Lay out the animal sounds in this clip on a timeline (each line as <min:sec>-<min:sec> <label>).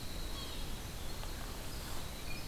0:00.0-0:02.5 Winter Wren (Troglodytes hiemalis)
0:00.2-0:00.8 Yellow-bellied Sapsucker (Sphyrapicus varius)